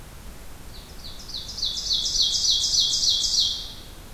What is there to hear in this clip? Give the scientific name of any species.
Seiurus aurocapilla